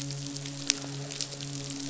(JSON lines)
{"label": "biophony, midshipman", "recorder": "SoundTrap 500"}